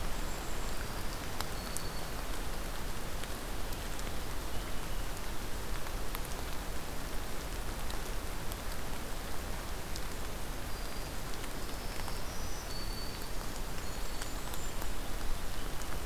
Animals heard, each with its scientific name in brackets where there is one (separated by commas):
Golden-crowned Kinglet (Regulus satrapa), Blackburnian Warbler (Setophaga fusca), Purple Finch (Haemorhous purpureus), Black-throated Green Warbler (Setophaga virens)